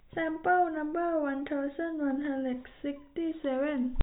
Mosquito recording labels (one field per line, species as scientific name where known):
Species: no mosquito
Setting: cup